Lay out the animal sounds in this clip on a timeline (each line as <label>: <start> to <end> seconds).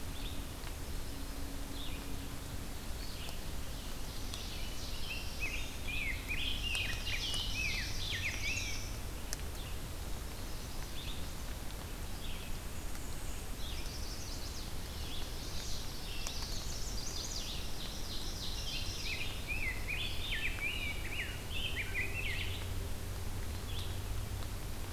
Red-eyed Vireo (Vireo olivaceus): 0.0 to 17.7 seconds
Black-throated Blue Warbler (Setophaga caerulescens): 4.1 to 5.9 seconds
Rose-breasted Grosbeak (Pheucticus ludovicianus): 4.8 to 8.9 seconds
Ovenbird (Seiurus aurocapilla): 6.2 to 8.5 seconds
Chestnut-sided Warbler (Setophaga pensylvanica): 7.9 to 9.0 seconds
Chestnut-sided Warbler (Setophaga pensylvanica): 10.2 to 11.3 seconds
Black-and-white Warbler (Mniotilta varia): 12.4 to 13.6 seconds
Chestnut-sided Warbler (Setophaga pensylvanica): 13.6 to 15.9 seconds
Black-throated Blue Warbler (Setophaga caerulescens): 15.6 to 16.8 seconds
Chestnut-sided Warbler (Setophaga pensylvanica): 16.3 to 17.7 seconds
Ovenbird (Seiurus aurocapilla): 17.0 to 19.4 seconds
Rose-breasted Grosbeak (Pheucticus ludovicianus): 18.6 to 22.5 seconds
Red-eyed Vireo (Vireo olivaceus): 19.9 to 24.0 seconds